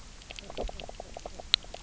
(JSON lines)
{"label": "biophony, knock croak", "recorder": "SoundTrap 300"}